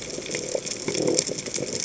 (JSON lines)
{"label": "biophony", "recorder": "HydroMoth"}